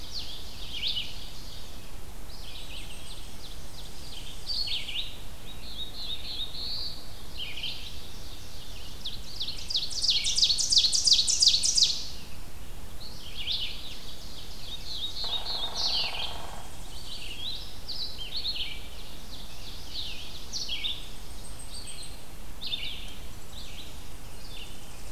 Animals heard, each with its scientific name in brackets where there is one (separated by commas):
Red-eyed Vireo (Vireo olivaceus), Ovenbird (Seiurus aurocapilla), Black-throated Blue Warbler (Setophaga caerulescens), Tennessee Warbler (Leiothlypis peregrina), Hairy Woodpecker (Dryobates villosus), Blackpoll Warbler (Setophaga striata)